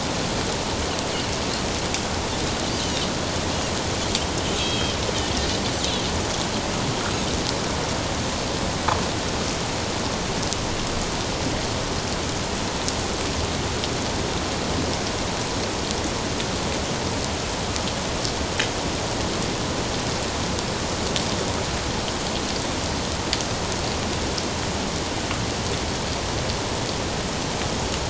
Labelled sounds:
4.6	5.0	Pacific white-sided dolphin, 2.5 to 3.3 kHz

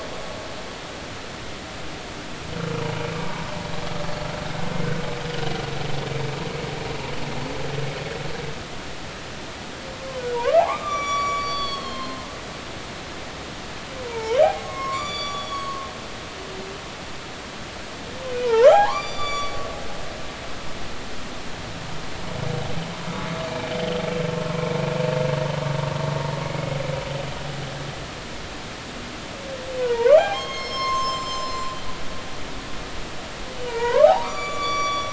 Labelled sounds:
10.3	12.3	humpback whale, 0.80 to 8.0 kHz
14.1	15.9	humpback whale, 0.80 to 8.0 kHz
18.4	19.7	humpback whale, 0.80 to 8.0 kHz
23.5	23.7	humpback whale, 2.3 to 2.4 kHz
24.3	24.7	humpback whale, 0.96 to 1.1 kHz
26.4	26.8	humpback whale, 2.1 to 2.2 kHz
29.8	31.8	humpback whale, 0.80 to 7.5 kHz
33.7	35.1	humpback whale, 0.80 to 8.0 kHz

